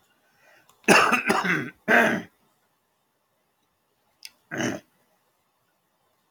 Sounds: Throat clearing